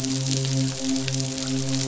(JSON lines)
{"label": "biophony, midshipman", "recorder": "SoundTrap 500"}